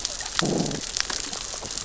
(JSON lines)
{"label": "biophony, growl", "recorder": "SoundTrap 600 or HydroMoth"}